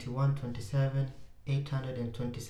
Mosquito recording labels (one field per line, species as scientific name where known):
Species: Anopheles arabiensis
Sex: female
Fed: unfed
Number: one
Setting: cup